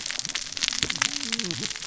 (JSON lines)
{"label": "biophony, cascading saw", "recorder": "SoundTrap 600 or HydroMoth"}